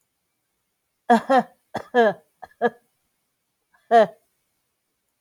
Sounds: Cough